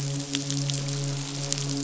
{"label": "biophony, midshipman", "recorder": "SoundTrap 500"}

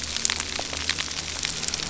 {"label": "anthrophony, boat engine", "recorder": "SoundTrap 300"}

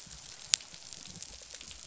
{"label": "biophony, rattle response", "recorder": "SoundTrap 500"}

